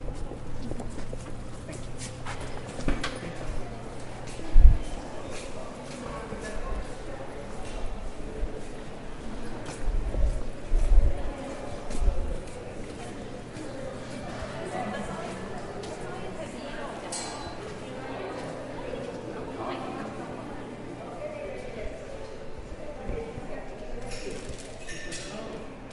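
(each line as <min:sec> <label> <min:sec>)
0:00.0 People walking on a solid surface in a spacious indoor space. 0:19.4
0:00.1 Many people are talking in the distance. 0:25.9
0:02.9 Door with a self-closing mechanism opens and then closes. 0:05.3
0:21.5 Relaxing neutral music without lyrics playing in the distance. 0:25.9
0:25.6 A high-pitched metallic clang is heard from a distance. 0:25.9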